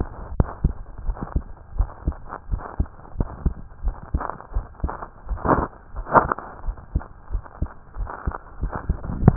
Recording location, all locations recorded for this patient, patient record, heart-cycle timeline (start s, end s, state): tricuspid valve (TV)
aortic valve (AV)+pulmonary valve (PV)+tricuspid valve (TV)+mitral valve (MV)
#Age: Child
#Sex: Male
#Height: 136.0 cm
#Weight: 26.3 kg
#Pregnancy status: False
#Murmur: Absent
#Murmur locations: nan
#Most audible location: nan
#Systolic murmur timing: nan
#Systolic murmur shape: nan
#Systolic murmur grading: nan
#Systolic murmur pitch: nan
#Systolic murmur quality: nan
#Diastolic murmur timing: nan
#Diastolic murmur shape: nan
#Diastolic murmur grading: nan
#Diastolic murmur pitch: nan
#Diastolic murmur quality: nan
#Outcome: Normal
#Campaign: 2015 screening campaign
0.00	1.04	unannotated
1.04	1.16	S1
1.16	1.32	systole
1.32	1.46	S2
1.46	1.74	diastole
1.74	1.90	S1
1.90	2.04	systole
2.04	2.18	S2
2.18	2.48	diastole
2.48	2.60	S1
2.60	2.76	systole
2.76	2.88	S2
2.88	3.16	diastole
3.16	3.28	S1
3.28	3.44	systole
3.44	3.58	S2
3.58	3.84	diastole
3.84	3.96	S1
3.96	4.10	systole
4.10	4.22	S2
4.22	4.52	diastole
4.52	4.66	S1
4.66	4.82	systole
4.82	4.96	S2
4.96	5.28	diastole
5.28	5.40	S1
5.40	5.50	systole
5.50	5.66	S2
5.66	5.94	diastole
5.94	6.06	S1
6.06	6.21	systole
6.21	6.30	S2
6.30	6.64	diastole
6.64	6.76	S1
6.76	6.92	systole
6.92	7.06	S2
7.06	7.29	diastole
7.29	7.42	S1
7.42	7.58	systole
7.58	7.68	S2
7.68	7.95	diastole
7.95	8.10	S1
8.10	8.24	systole
8.24	8.36	S2
8.36	8.60	diastole
8.60	8.72	S1
8.72	8.86	systole
8.86	8.98	S2
8.98	9.36	unannotated